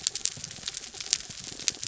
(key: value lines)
label: anthrophony, mechanical
recorder: SoundTrap 300